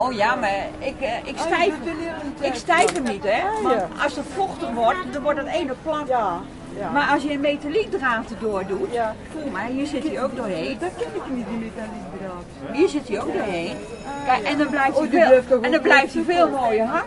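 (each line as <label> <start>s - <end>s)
Two women are speaking outside. 0.0s - 17.1s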